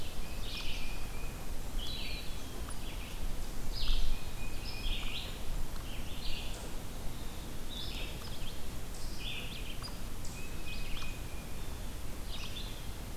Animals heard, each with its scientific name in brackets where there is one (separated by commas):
Eastern Wood-Pewee (Contopus virens), Black-throated Blue Warbler (Setophaga caerulescens), Hairy Woodpecker (Dryobates villosus), Red-eyed Vireo (Vireo olivaceus), Tufted Titmouse (Baeolophus bicolor)